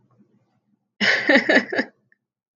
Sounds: Laughter